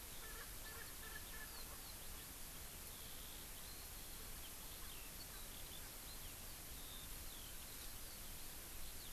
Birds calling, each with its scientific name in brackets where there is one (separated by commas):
Erckel's Francolin (Pternistis erckelii), Eurasian Skylark (Alauda arvensis)